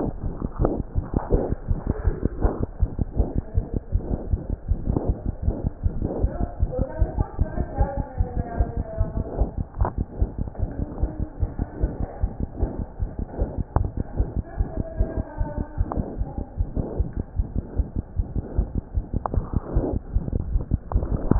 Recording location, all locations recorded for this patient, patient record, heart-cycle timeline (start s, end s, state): pulmonary valve (PV)
aortic valve (AV)+pulmonary valve (PV)+tricuspid valve (TV)+mitral valve (MV)
#Age: Child
#Sex: Male
#Height: 79.0 cm
#Weight: 9.79 kg
#Pregnancy status: False
#Murmur: Present
#Murmur locations: mitral valve (MV)+pulmonary valve (PV)+tricuspid valve (TV)
#Most audible location: tricuspid valve (TV)
#Systolic murmur timing: Holosystolic
#Systolic murmur shape: Plateau
#Systolic murmur grading: I/VI
#Systolic murmur pitch: Low
#Systolic murmur quality: Harsh
#Diastolic murmur timing: nan
#Diastolic murmur shape: nan
#Diastolic murmur grading: nan
#Diastolic murmur pitch: nan
#Diastolic murmur quality: nan
#Outcome: Abnormal
#Campaign: 2015 screening campaign
0.00	2.68	unannotated
2.68	2.80	diastole
2.80	2.88	S1
2.88	3.00	systole
3.00	3.08	S2
3.08	3.18	diastole
3.18	3.25	S1
3.25	3.35	systole
3.35	3.42	S2
3.42	3.55	diastole
3.55	3.64	S1
3.64	3.73	systole
3.73	3.80	S2
3.80	3.93	diastole
3.93	4.01	S1
4.01	4.10	systole
4.10	4.17	S2
4.17	4.31	diastole
4.31	4.38	S1
4.38	4.49	systole
4.49	4.56	S2
4.56	4.68	diastole
4.68	4.76	S1
4.76	4.88	systole
4.88	4.94	S2
4.94	5.08	diastole
5.08	5.12	S1
5.12	5.25	systole
5.25	5.32	S2
5.32	5.45	diastole
5.45	5.52	S1
5.52	5.63	systole
5.63	5.70	S2
5.70	5.83	diastole
5.83	5.91	S1
5.91	6.04	systole
6.04	6.09	S2
6.09	6.22	diastole
6.22	6.29	S1
6.29	6.40	systole
6.40	6.47	S2
6.47	6.61	diastole
6.61	6.69	S1
6.69	6.79	systole
6.79	6.88	S2
6.88	7.00	diastole
7.00	7.10	S1
7.10	7.18	systole
7.18	7.26	S2
7.26	7.40	diastole
7.40	7.48	S1
7.48	7.58	systole
7.58	7.66	S2
7.66	7.78	diastole
7.78	7.86	S1
7.86	7.97	systole
7.97	8.05	S2
8.05	8.18	diastole
8.18	8.26	S1
8.26	8.36	systole
8.36	8.45	S2
8.45	8.58	diastole
8.58	8.68	S1
8.68	8.78	systole
8.78	8.86	S2
8.86	8.98	diastole
8.98	9.06	S1
9.06	9.18	systole
9.18	9.26	S2
9.26	9.38	diastole
9.38	9.50	S1
9.50	9.58	systole
9.58	9.66	S2
9.66	9.78	diastole
9.78	9.86	S1
9.86	9.96	systole
9.96	10.04	S2
10.04	10.20	diastole
10.20	10.30	S1
10.30	10.40	systole
10.40	10.46	S2
10.46	10.60	diastole
10.60	10.70	S1
10.70	10.80	systole
10.80	10.86	S2
10.86	11.02	diastole
11.02	11.12	S1
11.12	11.20	systole
11.20	11.28	S2
11.28	11.42	diastole
11.42	11.50	S1
11.50	11.60	systole
11.60	11.66	S2
11.66	11.81	diastole
11.81	11.88	S1
11.88	12.00	systole
12.00	12.08	S2
12.08	12.22	diastole
12.22	12.30	S1
12.30	12.40	systole
12.40	12.48	S2
12.48	12.60	diastole
12.60	12.70	S1
12.70	12.80	systole
12.80	12.86	S2
12.86	13.00	diastole
13.00	13.08	S1
13.08	13.20	systole
13.20	13.26	S2
13.26	13.39	diastole
13.39	13.47	S1
13.47	13.57	systole
13.57	13.64	S2
13.64	13.78	diastole
13.78	21.39	unannotated